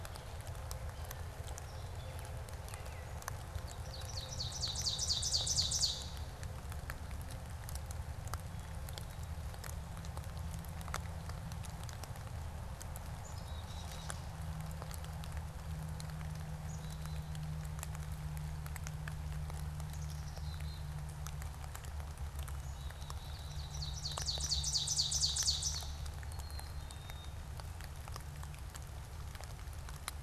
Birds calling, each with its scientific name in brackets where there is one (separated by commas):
Gray Catbird (Dumetella carolinensis), Ovenbird (Seiurus aurocapilla), Black-capped Chickadee (Poecile atricapillus)